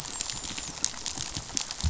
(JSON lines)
{"label": "biophony, dolphin", "recorder": "SoundTrap 500"}